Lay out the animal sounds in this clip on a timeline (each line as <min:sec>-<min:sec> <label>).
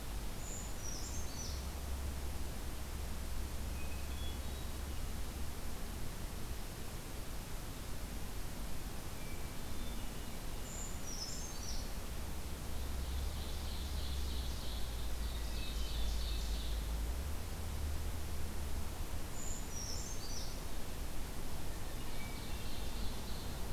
0:00.3-0:01.8 Brown Creeper (Certhia americana)
0:03.7-0:04.8 Hermit Thrush (Catharus guttatus)
0:09.2-0:10.3 Hermit Thrush (Catharus guttatus)
0:10.6-0:11.9 Brown Creeper (Certhia americana)
0:12.8-0:16.8 Ovenbird (Seiurus aurocapilla)
0:19.4-0:20.6 Brown Creeper (Certhia americana)
0:21.6-0:23.1 Hermit Thrush (Catharus guttatus)
0:21.8-0:23.7 Ovenbird (Seiurus aurocapilla)